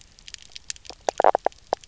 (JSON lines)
{"label": "biophony, knock croak", "recorder": "SoundTrap 300"}